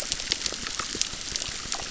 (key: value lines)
label: biophony, crackle
recorder: SoundTrap 600